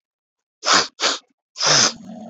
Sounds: Sniff